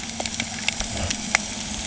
{"label": "anthrophony, boat engine", "recorder": "HydroMoth"}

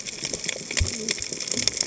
{"label": "biophony, cascading saw", "recorder": "HydroMoth"}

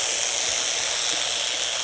{"label": "anthrophony, boat engine", "recorder": "HydroMoth"}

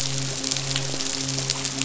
{"label": "biophony, midshipman", "recorder": "SoundTrap 500"}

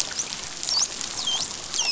{"label": "biophony, dolphin", "recorder": "SoundTrap 500"}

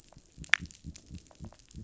{"label": "biophony", "recorder": "SoundTrap 500"}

